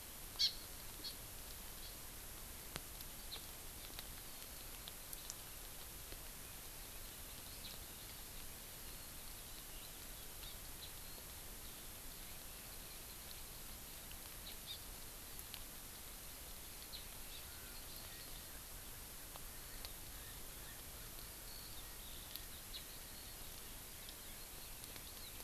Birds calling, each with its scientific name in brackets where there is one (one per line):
Erckel's Francolin (Pternistis erckelii)
Eurasian Skylark (Alauda arvensis)
Hawaii Amakihi (Chlorodrepanis virens)